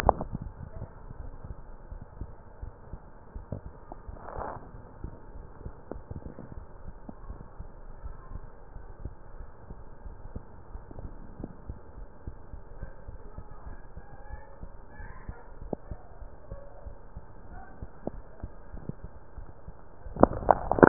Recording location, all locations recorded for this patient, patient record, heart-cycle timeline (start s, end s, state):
mitral valve (MV)
aortic valve (AV)+pulmonary valve (PV)+tricuspid valve (TV)+mitral valve (MV)
#Age: Child
#Sex: Female
#Height: 120.0 cm
#Weight: 23.9 kg
#Pregnancy status: False
#Murmur: Absent
#Murmur locations: nan
#Most audible location: nan
#Systolic murmur timing: nan
#Systolic murmur shape: nan
#Systolic murmur grading: nan
#Systolic murmur pitch: nan
#Systolic murmur quality: nan
#Diastolic murmur timing: nan
#Diastolic murmur shape: nan
#Diastolic murmur grading: nan
#Diastolic murmur pitch: nan
#Diastolic murmur quality: nan
#Outcome: Normal
#Campaign: 2015 screening campaign
0.00	1.66	unannotated
1.66	1.88	diastole
1.88	2.02	S1
2.02	2.16	systole
2.16	2.30	S2
2.30	2.56	diastole
2.56	2.74	S1
2.74	2.90	systole
2.90	3.04	S2
3.04	3.28	diastole
3.28	3.44	S1
3.44	3.62	systole
3.62	3.76	S2
3.76	4.04	diastole
4.04	4.20	S1
4.20	4.36	systole
4.36	4.48	S2
4.48	4.70	diastole
4.70	4.80	S1
4.80	5.00	systole
5.00	5.12	S2
5.12	5.32	diastole
5.32	5.46	S1
5.46	5.60	systole
5.60	5.72	S2
5.72	5.92	diastole
5.92	6.04	S1
6.04	6.22	systole
6.22	6.32	S2
6.32	6.52	diastole
6.52	6.68	S1
6.68	6.86	systole
6.86	6.96	S2
6.96	7.22	diastole
7.22	7.38	S1
7.38	7.56	systole
7.56	7.70	S2
7.70	7.98	diastole
7.98	8.14	S1
8.14	8.28	systole
8.28	8.44	S2
8.44	8.72	diastole
8.72	8.86	S1
8.86	9.04	systole
9.04	9.16	S2
9.16	9.38	diastole
9.38	9.50	S1
9.50	9.68	systole
9.68	9.80	S2
9.80	10.04	diastole
10.04	10.16	S1
10.16	10.32	systole
10.32	10.44	S2
10.44	10.68	diastole
10.68	10.82	S1
10.82	10.98	systole
10.98	11.14	S2
11.14	11.38	diastole
11.38	11.50	S1
11.50	11.66	systole
11.66	11.78	S2
11.78	11.98	diastole
11.98	12.10	S1
12.10	12.24	systole
12.24	12.34	S2
12.34	12.52	diastole
12.52	12.64	S1
12.64	12.78	systole
12.78	12.90	S2
12.90	13.08	diastole
13.08	13.20	S1
13.20	13.36	systole
13.36	13.46	S2
13.46	13.64	diastole
13.64	13.78	S1
13.78	13.94	systole
13.94	14.04	S2
14.04	14.30	diastole
14.30	14.42	S1
14.42	14.60	systole
14.60	14.70	S2
14.70	14.96	diastole
14.96	15.10	S1
15.10	15.26	systole
15.26	15.36	S2
15.36	15.60	diastole
15.60	15.72	S1
15.72	15.88	systole
15.88	15.98	S2
15.98	16.20	diastole
16.20	16.30	S1
16.30	16.50	systole
16.50	16.60	S2
16.60	16.84	diastole
16.84	16.96	S1
16.96	17.14	systole
17.14	17.24	S2
17.24	17.48	diastole
17.48	17.62	S1
17.62	17.80	systole
17.80	17.90	S2
17.90	18.12	diastole
18.12	18.26	S1
18.26	18.42	systole
18.42	18.52	S2
18.52	18.72	diastole
18.72	18.86	S1
18.86	19.02	systole
19.02	19.12	S2
19.12	19.36	diastole
19.36	19.50	S1
19.50	19.66	systole
19.66	19.76	S2
19.76	19.96	diastole
19.96	20.88	unannotated